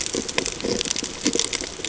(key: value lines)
label: ambient
recorder: HydroMoth